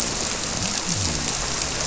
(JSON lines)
{"label": "biophony", "recorder": "SoundTrap 300"}